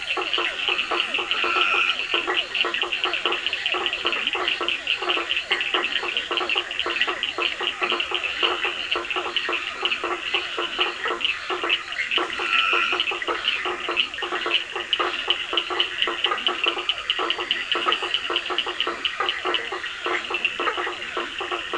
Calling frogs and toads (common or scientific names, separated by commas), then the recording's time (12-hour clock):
two-colored oval frog, blacksmith tree frog, Physalaemus cuvieri, Scinax perereca, Cochran's lime tree frog, Dendropsophus nahdereri, Leptodactylus latrans
9:30pm